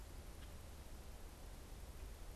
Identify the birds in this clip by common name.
Common Grackle